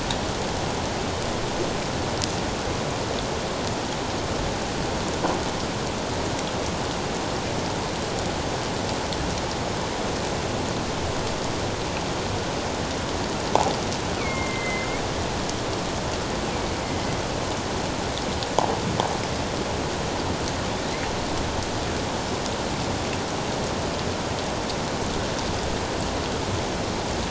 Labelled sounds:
14.2	14.9	killer whale, northern resident, A clan, AA subclan, A04 pod, call N04, 1.9 to 2.6 kHz

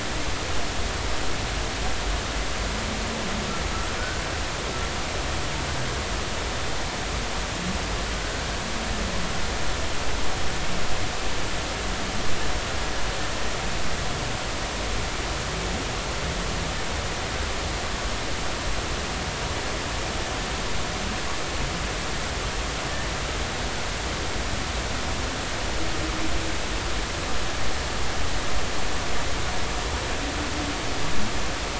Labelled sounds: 8.1	8.4	humpback whale, 1.4 to 1.6 kHz

